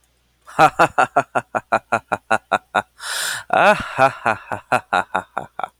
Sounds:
Laughter